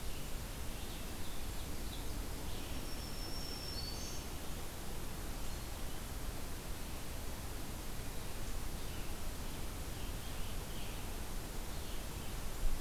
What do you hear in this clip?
Black-throated Green Warbler, Scarlet Tanager